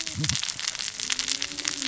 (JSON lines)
{"label": "biophony, cascading saw", "recorder": "SoundTrap 600 or HydroMoth"}